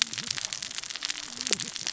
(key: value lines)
label: biophony, cascading saw
recorder: SoundTrap 600 or HydroMoth